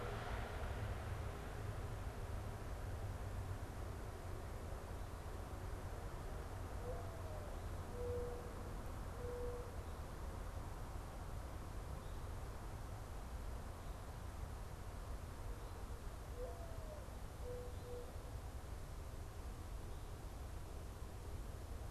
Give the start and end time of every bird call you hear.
6.1s-9.9s: Mourning Dove (Zenaida macroura)
16.2s-18.2s: Mourning Dove (Zenaida macroura)

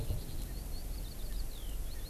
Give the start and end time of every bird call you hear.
0.0s-2.1s: Eurasian Skylark (Alauda arvensis)

